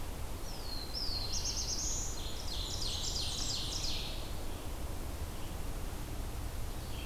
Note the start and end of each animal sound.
[0.00, 7.06] Red-eyed Vireo (Vireo olivaceus)
[0.12, 2.39] Black-throated Blue Warbler (Setophaga caerulescens)
[1.76, 4.39] Ovenbird (Seiurus aurocapilla)
[2.15, 3.64] Blackburnian Warbler (Setophaga fusca)

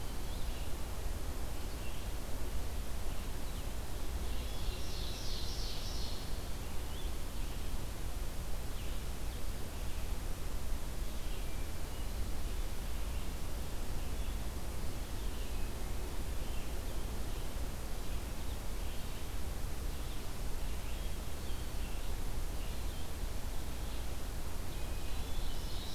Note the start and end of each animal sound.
[0.00, 0.83] Hermit Thrush (Catharus guttatus)
[0.00, 25.94] Red-eyed Vireo (Vireo olivaceus)
[4.32, 6.43] Ovenbird (Seiurus aurocapilla)
[24.55, 25.61] Hermit Thrush (Catharus guttatus)
[25.17, 25.94] Ovenbird (Seiurus aurocapilla)

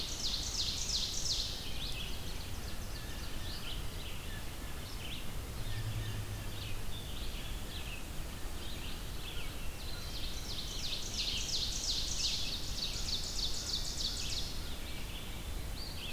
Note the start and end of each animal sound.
[0.00, 3.63] Ovenbird (Seiurus aurocapilla)
[1.55, 16.12] Red-eyed Vireo (Vireo olivaceus)
[2.71, 6.22] Blue Jay (Cyanocitta cristata)
[9.80, 14.38] American Crow (Corvus brachyrhynchos)
[9.87, 14.58] Ovenbird (Seiurus aurocapilla)

